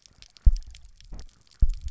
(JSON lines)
{"label": "biophony, double pulse", "recorder": "SoundTrap 300"}